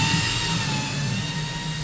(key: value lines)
label: anthrophony, boat engine
recorder: SoundTrap 500